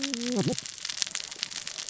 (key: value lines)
label: biophony, cascading saw
recorder: SoundTrap 600 or HydroMoth